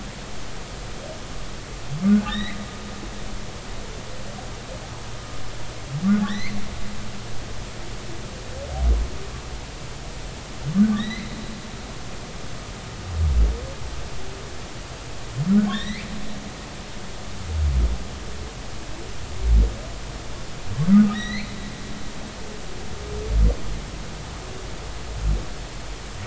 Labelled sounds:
2.3	2.6	humpback whale, 1.7 to 4.0 kHz
6.2	6.6	humpback whale, 1.3 to 6.4 kHz
10.9	11.4	humpback whale, 1.7 to 4.2 kHz
15.7	16.1	humpback whale, 1.3 to 6.0 kHz
20.9	21.6	humpback whale, 1.2 to 4.4 kHz

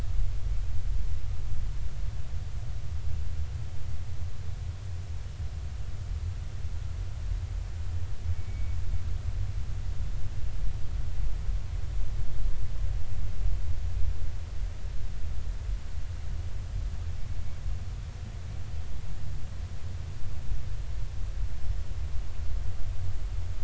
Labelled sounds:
8.3	8.8	humpback whale, 2.2 to 2.3 kHz

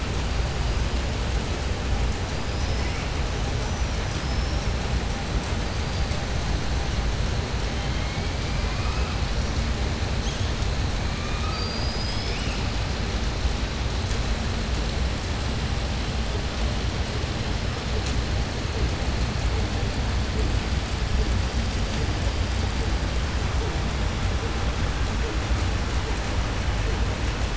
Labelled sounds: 4.0	4.7	killer whale, southern resident, 4.9 to 6.4 kHz
11.4	12.6	killer whale, southern resident, 2.3 to 7.9 kHz

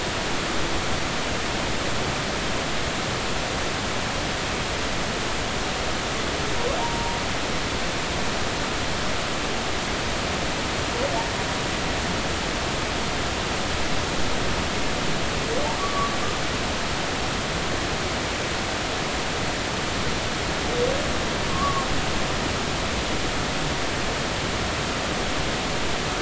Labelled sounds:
6.8	7.2	humpback whale, 0.86 to 1.0 kHz
15.8	16.1	humpback whale, 1.0 to 1.2 kHz
21.5	21.9	humpback whale, 1.0 to 1.2 kHz

